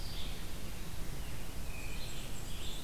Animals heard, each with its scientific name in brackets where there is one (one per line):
Black-and-white Warbler (Mniotilta varia)
Red-eyed Vireo (Vireo olivaceus)